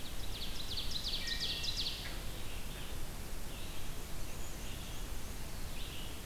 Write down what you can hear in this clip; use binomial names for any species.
Seiurus aurocapilla, Vireo olivaceus, Hylocichla mustelina, Mniotilta varia